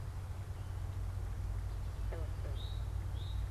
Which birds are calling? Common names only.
Eastern Towhee